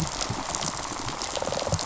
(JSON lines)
{"label": "biophony, rattle response", "recorder": "SoundTrap 500"}